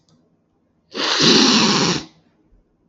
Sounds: Sniff